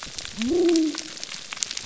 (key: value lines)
label: biophony
recorder: SoundTrap 300